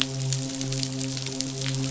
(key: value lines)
label: biophony, midshipman
recorder: SoundTrap 500